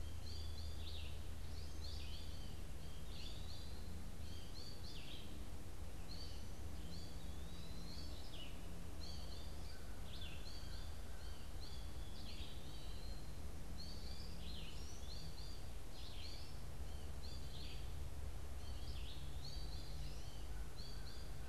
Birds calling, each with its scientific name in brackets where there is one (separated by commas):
American Crow (Corvus brachyrhynchos), Eastern Wood-Pewee (Contopus virens), Red-eyed Vireo (Vireo olivaceus), American Goldfinch (Spinus tristis)